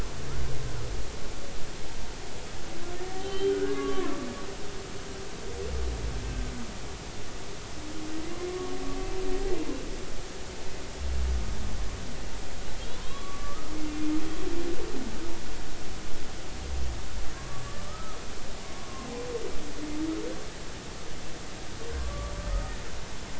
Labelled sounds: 3.2	4.1	humpback whale, 0.96 to 3.2 kHz
4.5	4.9	humpback whale, 1.4 to 1.7 kHz
8.5	8.8	humpback whale, 1.1 to 1.2 kHz
12.8	13.7	humpback whale, 1.0 to 3.6 kHz
17.4	18.2	humpback whale, 1.0 to 1.4 kHz
18.8	19.1	humpback whale, 0.99 to 1.2 kHz
22.0	22.3	humpback whale, 1.0 to 1.2 kHz

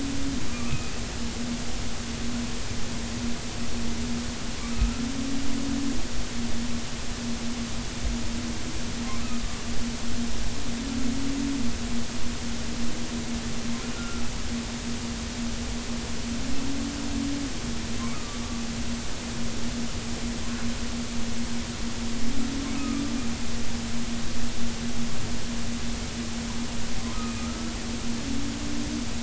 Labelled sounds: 0.5	0.9	humpback whale, 1.1 to 2.6 kHz
4.7	5.0	humpback whale, 1.2 to 1.4 kHz
13.9	14.2	humpback whale, 1.3 to 1.5 kHz
18.1	18.4	humpback whale, 1.1 to 1.4 kHz
22.7	23.1	humpback whale, 1.2 to 1.3 kHz
27.2	27.8	humpback whale, 1.2 to 2.6 kHz

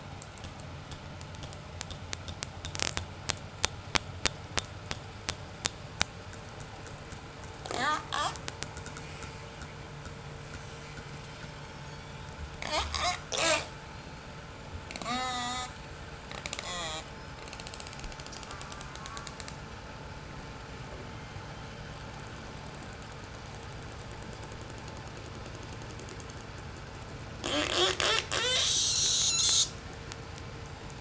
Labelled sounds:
7.5	8.4	killer whale, J pod, 0.13 to 8.0 kHz
10.3	13.8	killer whale, J pod, 0.20 to 8.0 kHz
14.9	17.2	killer whale, J pod, call S04, 0.15 to 8.0 kHz
18.3	19.5	killer whale, J pod, call S04, 0.69 to 1.8 kHz
21.0	21.6	killer whale, J pod, 1.9 to 6.4 kHz
27.3	29.8	killer whale, J pod, 0.08 to 8.0 kHz

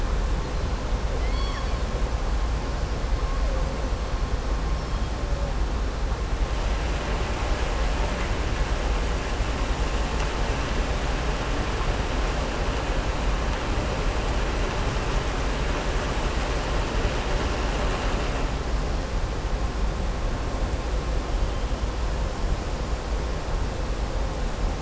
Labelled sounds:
1.1	1.8	killer whale, southern resident, 1.1 to 5.6 kHz

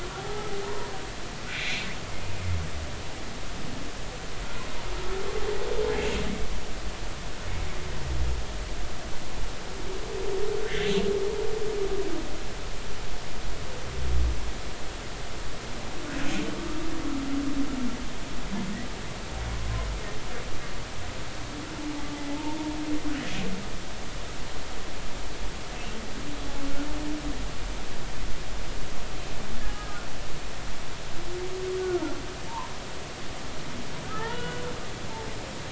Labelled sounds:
0.2	0.5	humpback whale, 0.80 to 1.3 kHz
1.5	1.9	humpback whale, 1.9 to 2.6 kHz
10.7	10.9	humpback whale, 1.5 to 2.2 kHz
22.3	22.6	humpback whale, 0.83 to 0.99 kHz
29.6	30.0	humpback whale, 1.2 to 1.8 kHz
31.8	32.0	humpback whale, 1.2 to 1.5 kHz
34.0	34.6	humpback whale, 0.83 to 3.5 kHz

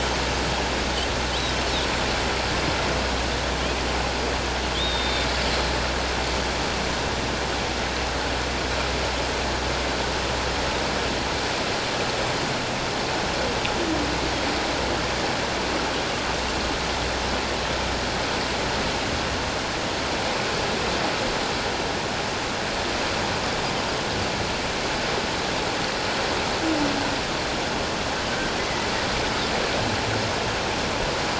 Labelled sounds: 4.7	5.3	Pacific white-sided dolphin, 3.1 to 3.8 kHz
28.6	28.9	humpback whale, 1.9 to 2.2 kHz

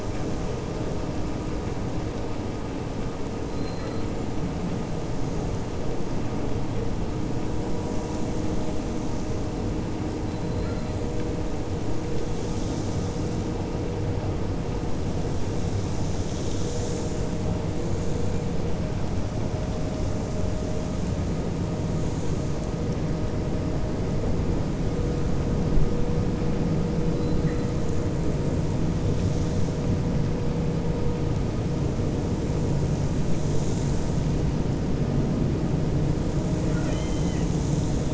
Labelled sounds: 36.6	37.5	killer whale, 1.2 to 4.1 kHz

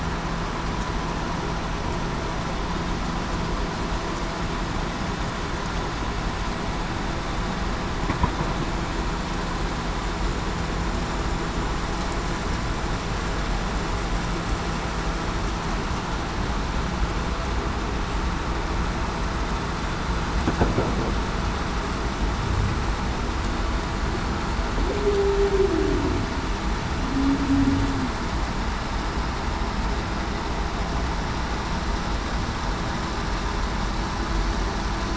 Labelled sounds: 24.8	26.1	humpback whale, 0.26 to 0.56 kHz

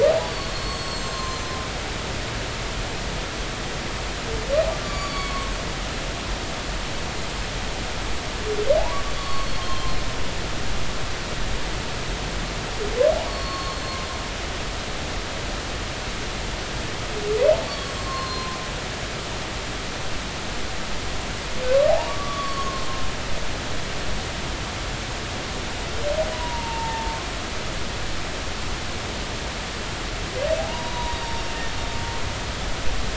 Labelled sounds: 0.2	1.5	humpback whale, 0.99 to 7.7 kHz
4.8	5.5	humpback whale, 0.99 to 7.1 kHz
8.8	9.9	humpback whale, 0.80 to 4.5 kHz
13.3	14.0	humpback whale, 1.0 to 4.5 kHz
17.6	18.6	humpback whale, 0.99 to 7.7 kHz
21.9	22.9	humpback whale, 0.80 to 4.5 kHz
26.3	27.2	humpback whale, 0.83 to 1.0 kHz
30.7	31.5	humpback whale, 0.90 to 4.8 kHz

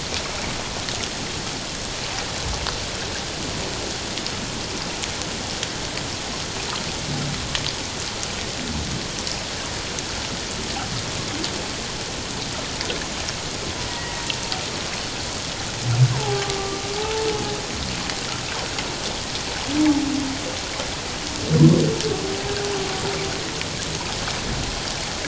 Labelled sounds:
13.8	14.3	humpback whale, 1.8 to 2.0 kHz
16.1	17.3	humpback whale, 0.78 to 1.1 kHz

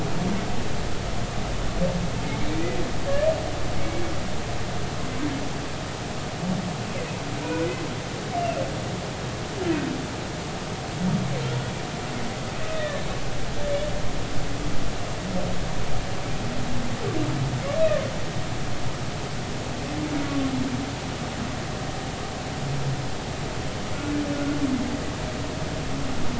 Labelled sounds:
7.4	7.7	humpback whale, 1.4 to 1.5 kHz
8.4	8.6	humpback whale, 2.5 to 2.8 kHz
12.5	13.0	humpback whale, 1.7 to 2.6 kHz
20.3	20.5	humpback whale, 1.1 to 1.2 kHz

